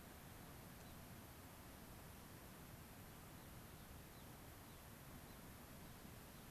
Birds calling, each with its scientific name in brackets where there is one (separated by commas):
Gray-crowned Rosy-Finch (Leucosticte tephrocotis)